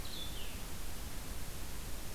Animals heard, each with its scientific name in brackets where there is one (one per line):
Blue-headed Vireo (Vireo solitarius)